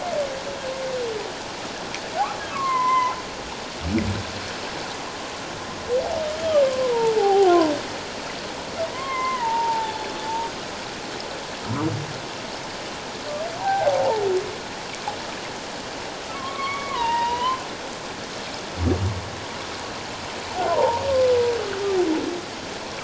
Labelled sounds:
2.5	3.2	humpback whale, 0.81 to 2.2 kHz
6.4	7.7	humpback whale, 0.78 to 3.3 kHz
8.9	10.1	humpback whale, 0.81 to 3.6 kHz
13.6	14.0	humpback whale, 0.78 to 1.6 kHz
16.3	17.6	humpback whale, 0.84 to 3.4 kHz
20.7	21.0	humpback whale, 0.81 to 1.2 kHz

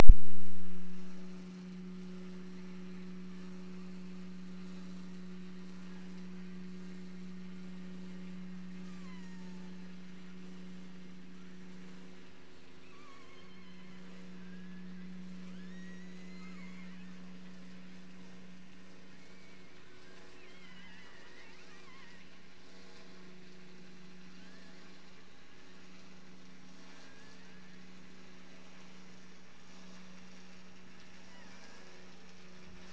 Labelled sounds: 8.8	9.8	killer whale, offshore, 0.66 to 7.7 kHz
12.9	15.0	killer whale, offshore, 0.77 to 4.6 kHz
15.4	17.1	killer whale, offshore, 0.84 to 8.0 kHz
19.0	22.3	killer whale, offshore, 0.68 to 3.5 kHz
24.3	25.1	killer whale, offshore, 0.93 to 2.4 kHz
26.8	28.0	killer whale, offshore, 0.84 to 2.6 kHz
31.2	32.2	killer whale, offshore, 0.48 to 3.1 kHz

